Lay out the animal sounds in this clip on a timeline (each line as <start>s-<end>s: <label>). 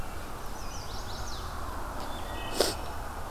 0.3s-1.6s: Chestnut-sided Warbler (Setophaga pensylvanica)
1.9s-3.1s: Wood Thrush (Hylocichla mustelina)